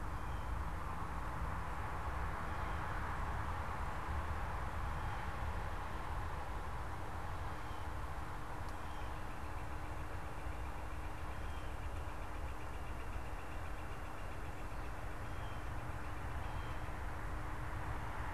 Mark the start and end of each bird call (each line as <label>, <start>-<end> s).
Blue Jay (Cyanocitta cristata), 4.0-8.1 s
Northern Flicker (Colaptes auratus), 8.5-17.4 s